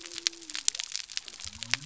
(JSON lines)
{"label": "biophony", "recorder": "SoundTrap 300"}